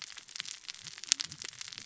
{"label": "biophony, cascading saw", "recorder": "SoundTrap 600 or HydroMoth"}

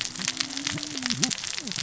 {"label": "biophony, cascading saw", "recorder": "SoundTrap 600 or HydroMoth"}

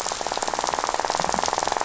{"label": "biophony, rattle", "recorder": "SoundTrap 500"}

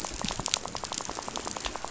{"label": "biophony, rattle", "recorder": "SoundTrap 500"}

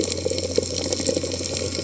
{"label": "biophony", "recorder": "HydroMoth"}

